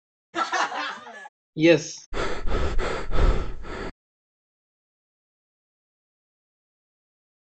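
First, at 0.3 seconds, someone laughs. Then at 1.6 seconds, a voice says "Yes." Next, at 2.1 seconds, someone breathes.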